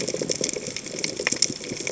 {"label": "biophony, chatter", "recorder": "HydroMoth"}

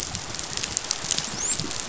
{"label": "biophony, dolphin", "recorder": "SoundTrap 500"}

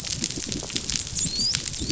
{"label": "biophony, dolphin", "recorder": "SoundTrap 500"}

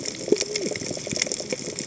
{"label": "biophony, cascading saw", "recorder": "HydroMoth"}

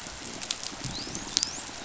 {"label": "biophony, dolphin", "recorder": "SoundTrap 500"}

